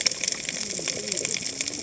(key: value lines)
label: biophony, cascading saw
recorder: HydroMoth